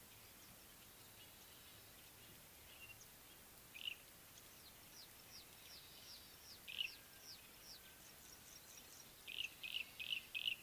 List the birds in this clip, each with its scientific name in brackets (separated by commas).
Pale Prinia (Prinia somalica), Yellow-breasted Apalis (Apalis flavida), Red-fronted Prinia (Prinia rufifrons)